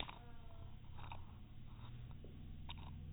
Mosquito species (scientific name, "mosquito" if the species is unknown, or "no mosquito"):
no mosquito